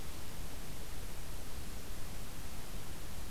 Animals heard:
forest ambience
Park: Acadia National Park